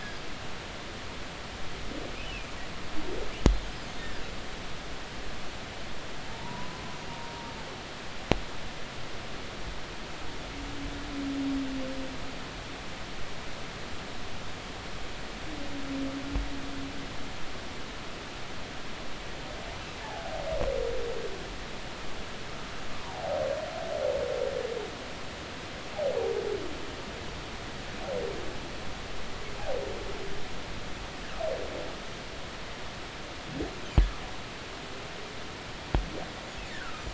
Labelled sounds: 0.0	0.3	humpback whale, 4.7 to 5.1 kHz
0.7	1.2	humpback whale, 1.6 to 5.2 kHz
6.2	7.5	humpback whale, 0.86 to 1.1 kHz
20.0	20.3	humpback whale, 0.80 to 0.96 kHz
23.0	23.4	humpback whale, 0.80 to 1.0 kHz
36.7	37.1	humpback whale, 1.2 to 1.9 kHz

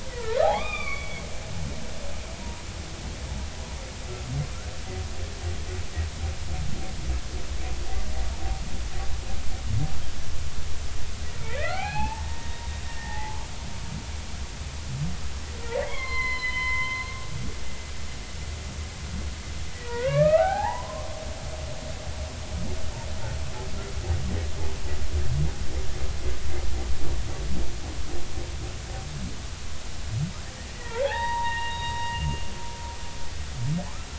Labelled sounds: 0.1	1.2	humpback whale, 0.80 to 3.7 kHz
11.4	13.4	humpback whale, 0.80 to 2.8 kHz
15.8	17.0	humpback whale, 0.93 to 4.3 kHz
19.7	21.1	humpback whale, 0.80 to 2.8 kHz
30.8	32.3	humpback whale, 0.80 to 4.8 kHz

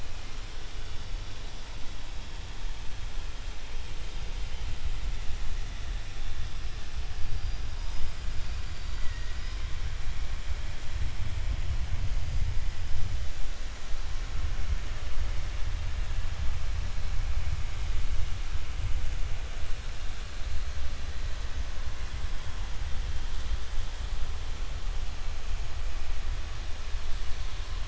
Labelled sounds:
8.3	9.6	killer whale, 0.98 to 5.6 kHz

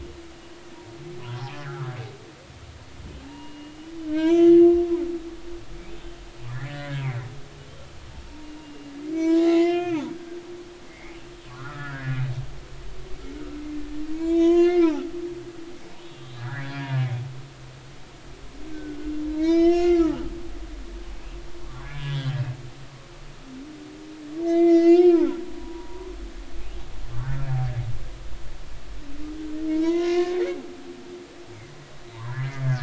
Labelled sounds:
1.5	1.9	humpback whale, 0.99 to 1.8 kHz
3.2	4.8	humpback whale, 0.90 to 3.5 kHz
6.5	7.1	humpback whale, 1.5 to 2.2 kHz
8.3	10.4	humpback whale, 0.80 to 3.6 kHz
10.9	12.2	humpback whale, 0.99 to 2.5 kHz
14.1	15.1	humpback whale, 0.93 to 7.4 kHz
16.0	16.8	humpback whale, 1.3 to 3.6 kHz
18.7	19.1	humpback whale, 1.4 to 1.6 kHz
19.4	20.2	humpback whale, 0.93 to 6.7 kHz
21.6	22.4	humpback whale, 0.96 to 3.7 kHz
24.4	25.3	humpback whale, 1.2 to 6.6 kHz
25.6	26.1	humpback whale, 0.90 to 1.1 kHz
29.7	30.6	humpback whale, 0.90 to 5.9 kHz
32.4	32.6	humpback whale, 2.0 to 2.2 kHz

